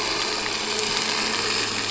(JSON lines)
{"label": "anthrophony, boat engine", "recorder": "SoundTrap 300"}